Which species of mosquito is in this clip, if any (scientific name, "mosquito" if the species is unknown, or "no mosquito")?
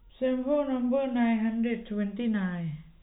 no mosquito